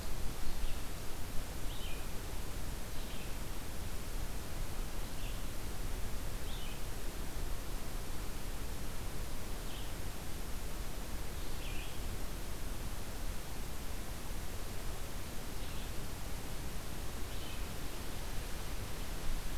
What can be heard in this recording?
Red-eyed Vireo